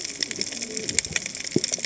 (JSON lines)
{"label": "biophony, cascading saw", "recorder": "HydroMoth"}